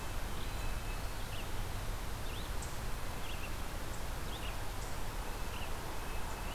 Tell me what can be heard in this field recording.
Red-breasted Nuthatch, Red-eyed Vireo